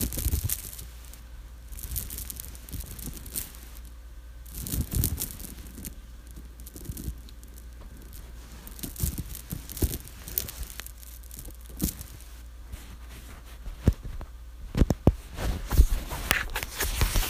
Do the noises sound far away?
no